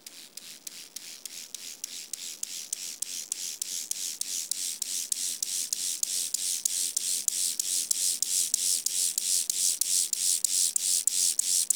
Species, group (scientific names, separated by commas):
Chorthippus mollis, Orthoptera